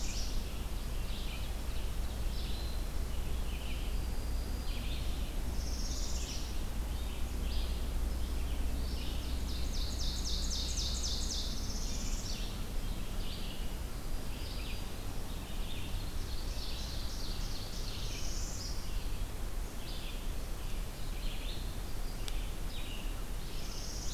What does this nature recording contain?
Red-eyed Vireo, Black-throated Green Warbler, Northern Parula, Ovenbird